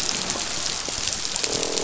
{"label": "biophony, croak", "recorder": "SoundTrap 500"}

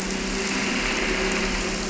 {"label": "anthrophony, boat engine", "recorder": "SoundTrap 300"}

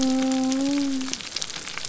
{"label": "biophony", "recorder": "SoundTrap 300"}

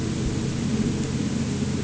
{"label": "anthrophony, boat engine", "recorder": "HydroMoth"}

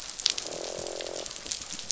{"label": "biophony, croak", "recorder": "SoundTrap 500"}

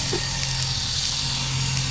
{"label": "anthrophony, boat engine", "recorder": "SoundTrap 500"}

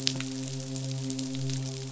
{"label": "biophony, midshipman", "recorder": "SoundTrap 500"}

